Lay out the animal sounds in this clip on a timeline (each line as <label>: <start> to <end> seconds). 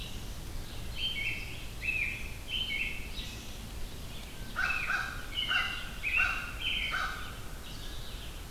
Red-eyed Vireo (Vireo olivaceus): 0.0 to 8.5 seconds
American Robin (Turdus migratorius): 0.8 to 3.4 seconds
American Crow (Corvus brachyrhynchos): 4.4 to 7.3 seconds
American Robin (Turdus migratorius): 4.5 to 6.9 seconds